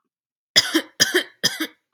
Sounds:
Cough